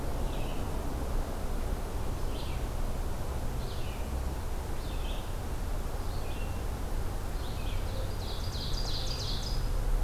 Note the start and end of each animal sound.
[0.00, 10.03] Red-eyed Vireo (Vireo olivaceus)
[7.87, 9.83] Ovenbird (Seiurus aurocapilla)

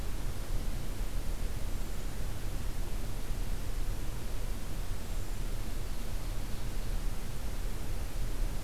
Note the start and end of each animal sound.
[1.64, 2.05] Hermit Thrush (Catharus guttatus)
[4.92, 5.54] Hermit Thrush (Catharus guttatus)
[5.85, 7.14] Ovenbird (Seiurus aurocapilla)

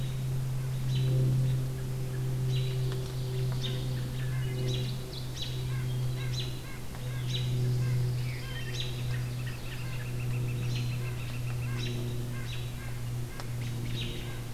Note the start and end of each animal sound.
[0.88, 1.19] American Robin (Turdus migratorius)
[2.43, 2.74] American Robin (Turdus migratorius)
[2.43, 4.01] Ovenbird (Seiurus aurocapilla)
[3.56, 3.73] American Robin (Turdus migratorius)
[4.05, 4.95] Hermit Thrush (Catharus guttatus)
[4.53, 5.53] Ovenbird (Seiurus aurocapilla)
[4.56, 4.86] American Robin (Turdus migratorius)
[5.26, 5.49] American Robin (Turdus migratorius)
[5.62, 8.65] White-breasted Nuthatch (Sitta carolinensis)
[6.31, 6.46] American Robin (Turdus migratorius)
[7.20, 7.41] American Robin (Turdus migratorius)
[7.76, 8.79] Pine Warbler (Setophaga pinus)
[8.66, 8.79] American Robin (Turdus migratorius)
[8.91, 11.93] Northern Flicker (Colaptes auratus)
[10.60, 10.96] American Robin (Turdus migratorius)
[11.61, 14.54] White-breasted Nuthatch (Sitta carolinensis)
[11.73, 11.91] American Robin (Turdus migratorius)
[12.43, 12.63] American Robin (Turdus migratorius)
[13.85, 14.10] American Robin (Turdus migratorius)

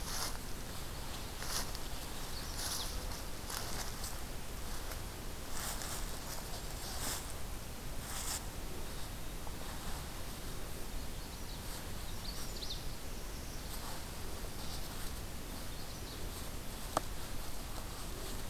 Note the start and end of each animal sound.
[1.89, 2.92] Magnolia Warbler (Setophaga magnolia)
[10.75, 11.78] Magnolia Warbler (Setophaga magnolia)
[12.03, 12.90] Magnolia Warbler (Setophaga magnolia)
[15.49, 16.50] Magnolia Warbler (Setophaga magnolia)

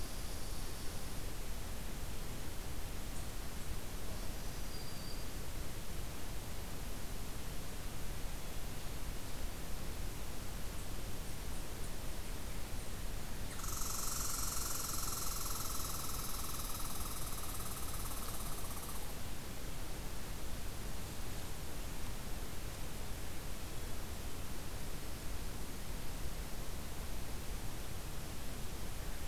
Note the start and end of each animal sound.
[0.00, 1.12] Red Squirrel (Tamiasciurus hudsonicus)
[4.14, 5.43] Black-throated Green Warbler (Setophaga virens)
[10.73, 19.13] Red Squirrel (Tamiasciurus hudsonicus)

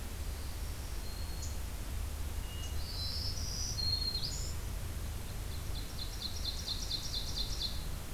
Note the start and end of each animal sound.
[0.28, 1.65] Black-throated Green Warbler (Setophaga virens)
[2.26, 3.28] Hermit Thrush (Catharus guttatus)
[2.87, 4.70] Black-throated Green Warbler (Setophaga virens)
[5.25, 7.96] Ovenbird (Seiurus aurocapilla)

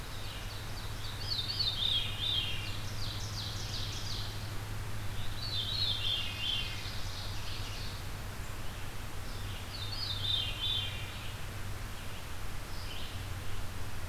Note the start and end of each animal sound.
[0.00, 4.46] Ovenbird (Seiurus aurocapilla)
[0.00, 14.08] Red-eyed Vireo (Vireo olivaceus)
[1.40, 2.73] Veery (Catharus fuscescens)
[5.17, 6.79] Veery (Catharus fuscescens)
[5.67, 8.04] Ovenbird (Seiurus aurocapilla)
[9.63, 11.09] Veery (Catharus fuscescens)

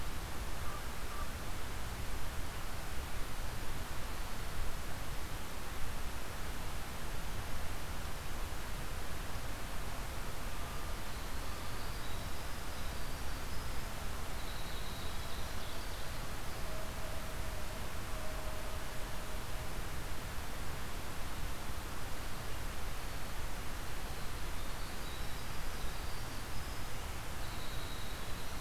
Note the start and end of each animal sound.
[11.12, 16.89] Winter Wren (Troglodytes hiemalis)
[23.38, 28.60] Winter Wren (Troglodytes hiemalis)

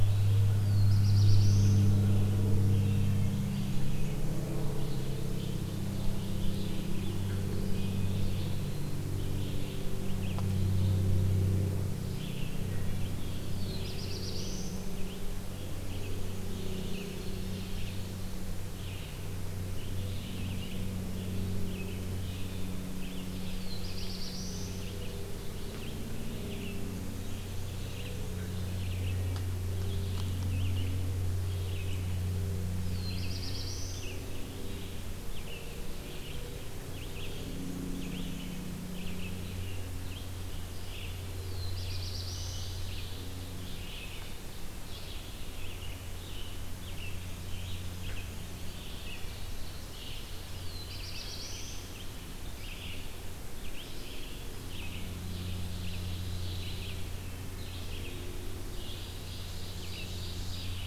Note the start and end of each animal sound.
[0.00, 60.86] Red-eyed Vireo (Vireo olivaceus)
[0.56, 2.17] Black-throated Blue Warbler (Setophaga caerulescens)
[3.02, 4.42] Black-and-white Warbler (Mniotilta varia)
[4.86, 6.89] Ovenbird (Seiurus aurocapilla)
[13.36, 15.09] Black-throated Blue Warbler (Setophaga caerulescens)
[16.46, 18.58] Ovenbird (Seiurus aurocapilla)
[23.14, 25.03] Black-throated Blue Warbler (Setophaga caerulescens)
[26.50, 28.45] Black-and-white Warbler (Mniotilta varia)
[32.70, 34.28] Black-throated Blue Warbler (Setophaga caerulescens)
[41.27, 42.87] Black-throated Blue Warbler (Setophaga caerulescens)
[41.92, 44.58] Ovenbird (Seiurus aurocapilla)
[48.42, 49.87] Eastern Wood-Pewee (Contopus virens)
[50.23, 52.02] Black-throated Blue Warbler (Setophaga caerulescens)
[54.58, 57.14] Ovenbird (Seiurus aurocapilla)
[58.71, 60.86] Ovenbird (Seiurus aurocapilla)

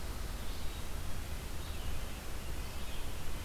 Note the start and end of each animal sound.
[0.00, 3.44] Red-breasted Nuthatch (Sitta canadensis)
[0.00, 3.44] Red-eyed Vireo (Vireo olivaceus)

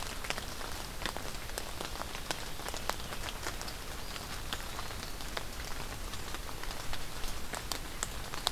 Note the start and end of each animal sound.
[3.78, 5.01] Eastern Wood-Pewee (Contopus virens)

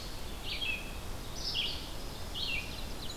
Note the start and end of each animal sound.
[0.00, 3.17] Red-eyed Vireo (Vireo olivaceus)
[1.42, 3.17] Ovenbird (Seiurus aurocapilla)

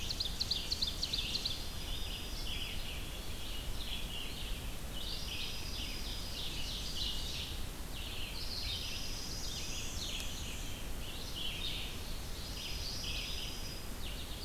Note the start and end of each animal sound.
[0.00, 0.69] Red-eyed Vireo (Vireo olivaceus)
[0.00, 1.85] Ovenbird (Seiurus aurocapilla)
[1.00, 14.45] Red-eyed Vireo (Vireo olivaceus)
[1.56, 2.92] Dark-eyed Junco (Junco hyemalis)
[5.04, 6.44] Dark-eyed Junco (Junco hyemalis)
[5.04, 7.58] Ovenbird (Seiurus aurocapilla)
[8.56, 9.95] Dark-eyed Junco (Junco hyemalis)
[9.38, 10.80] Black-and-white Warbler (Mniotilta varia)
[12.34, 13.82] Dark-eyed Junco (Junco hyemalis)

